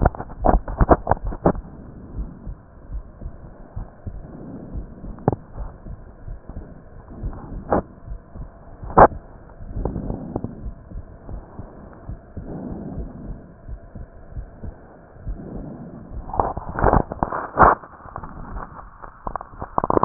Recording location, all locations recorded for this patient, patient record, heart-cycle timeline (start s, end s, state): pulmonary valve (PV)
pulmonary valve (PV)+tricuspid valve (TV)+mitral valve (MV)
#Age: Child
#Sex: Male
#Height: 145.0 cm
#Weight: 34.1 kg
#Pregnancy status: False
#Murmur: Absent
#Murmur locations: nan
#Most audible location: nan
#Systolic murmur timing: nan
#Systolic murmur shape: nan
#Systolic murmur grading: nan
#Systolic murmur pitch: nan
#Systolic murmur quality: nan
#Diastolic murmur timing: nan
#Diastolic murmur shape: nan
#Diastolic murmur grading: nan
#Diastolic murmur pitch: nan
#Diastolic murmur quality: nan
#Outcome: Normal
#Campaign: 2015 screening campaign
0.00	2.16	unannotated
2.16	2.32	S1
2.32	2.42	systole
2.42	2.54	S2
2.54	2.90	diastole
2.90	3.04	S1
3.04	3.20	systole
3.20	3.32	S2
3.32	3.76	diastole
3.76	3.90	S1
3.90	4.04	systole
4.04	4.20	S2
4.20	4.74	diastole
4.74	4.90	S1
4.90	5.02	systole
5.02	5.14	S2
5.14	5.56	diastole
5.56	5.70	S1
5.70	5.84	systole
5.84	6.00	S2
6.00	6.25	diastole
6.25	6.40	S1
6.40	6.54	systole
6.54	6.68	S2
6.68	7.20	diastole
7.20	7.38	S1
7.38	7.48	systole
7.48	7.62	S2
7.62	8.08	diastole
8.08	8.22	S1
8.22	8.36	systole
8.36	8.50	S2
8.50	8.82	diastole
8.82	8.96	S1
8.96	9.09	systole
9.09	9.24	S2
9.24	9.73	diastole
9.73	9.90	S1
9.90	10.06	systole
10.06	10.22	S2
10.22	10.62	diastole
10.62	10.74	S1
10.74	10.91	systole
10.91	11.04	S2
11.04	11.27	diastole
11.27	11.44	S1
11.44	11.56	systole
11.56	11.66	S2
11.66	12.04	diastole
12.04	12.20	S1
12.20	12.34	systole
12.34	12.44	S2
12.44	12.92	diastole
12.92	13.08	S1
13.08	13.25	systole
13.25	13.37	S2
13.37	13.64	diastole
13.64	13.80	S1
13.80	20.05	unannotated